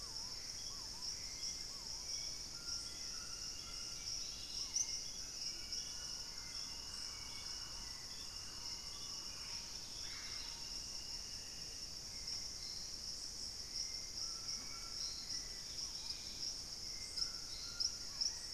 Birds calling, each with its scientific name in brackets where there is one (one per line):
Dusky-capped Greenlet (Pachysylvia hypoxantha)
Purple-throated Fruitcrow (Querula purpurata)
Hauxwell's Thrush (Turdus hauxwelli)
Screaming Piha (Lipaugus vociferans)
Gray Antbird (Cercomacra cinerascens)
White-throated Toucan (Ramphastos tucanus)
Thrush-like Wren (Campylorhynchus turdinus)